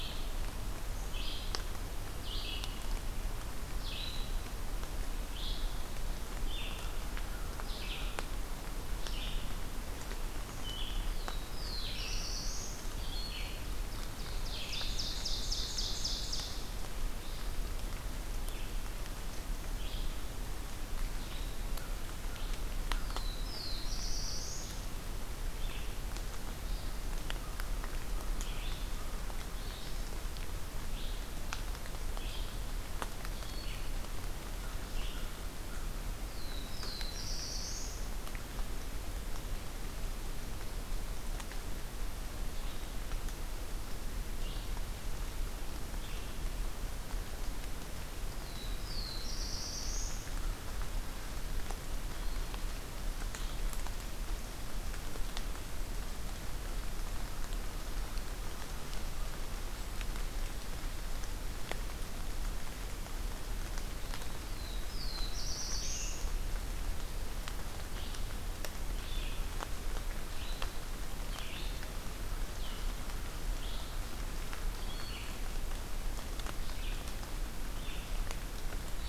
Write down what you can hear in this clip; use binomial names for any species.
Vireo olivaceus, Corvus brachyrhynchos, Setophaga caerulescens, Seiurus aurocapilla